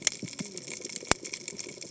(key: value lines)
label: biophony, cascading saw
recorder: HydroMoth